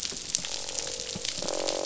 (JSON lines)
{"label": "biophony, croak", "recorder": "SoundTrap 500"}